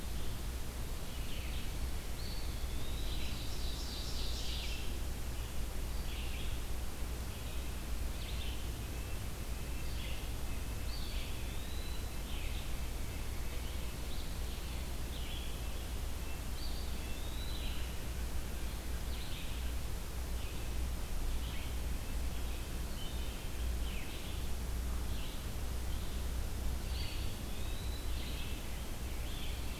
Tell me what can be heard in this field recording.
Red-eyed Vireo, Eastern Wood-Pewee, Ovenbird, Wood Thrush